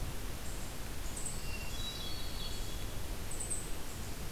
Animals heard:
Eastern Chipmunk (Tamias striatus)
Hermit Thrush (Catharus guttatus)

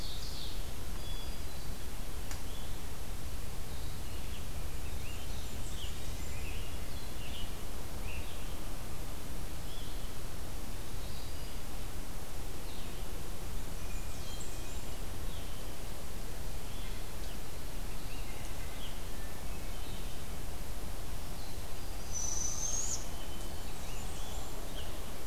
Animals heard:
Ovenbird (Seiurus aurocapilla)
Hermit Thrush (Catharus guttatus)
Scarlet Tanager (Piranga olivacea)
Blackburnian Warbler (Setophaga fusca)
Barred Owl (Strix varia)
Blue-headed Vireo (Vireo solitarius)

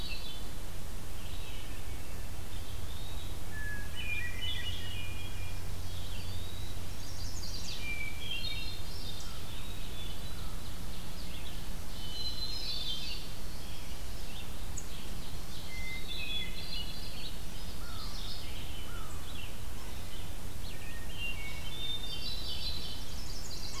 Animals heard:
Chestnut-sided Warbler (Setophaga pensylvanica)
Ovenbird (Seiurus aurocapilla)
Hermit Thrush (Catharus guttatus)
Eastern Wood-Pewee (Contopus virens)
American Crow (Corvus brachyrhynchos)
Red-eyed Vireo (Vireo olivaceus)

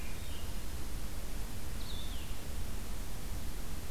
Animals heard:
Blue-headed Vireo (Vireo solitarius)

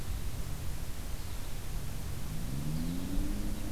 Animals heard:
American Goldfinch (Spinus tristis)

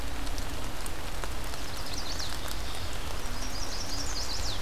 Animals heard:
Mourning Warbler (Geothlypis philadelphia)
Chestnut-sided Warbler (Setophaga pensylvanica)

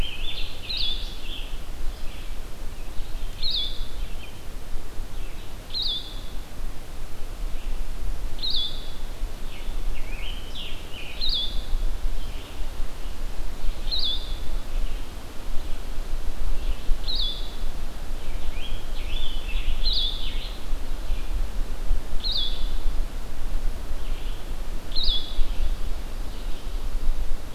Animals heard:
Scarlet Tanager (Piranga olivacea)
Blue-headed Vireo (Vireo solitarius)

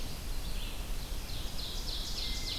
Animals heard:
Ovenbird (Seiurus aurocapilla)
Red-eyed Vireo (Vireo olivaceus)

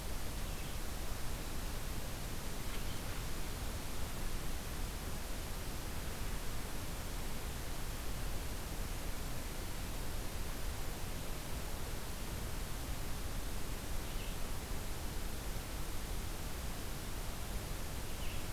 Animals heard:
Red-eyed Vireo (Vireo olivaceus)

